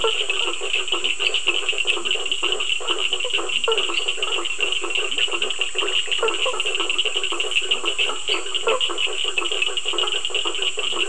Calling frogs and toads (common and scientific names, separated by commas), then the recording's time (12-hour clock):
blacksmith tree frog (Boana faber), Cochran's lime tree frog (Sphaenorhynchus surdus), Leptodactylus latrans, lesser tree frog (Dendropsophus minutus), Bischoff's tree frog (Boana bischoffi)
9:15pm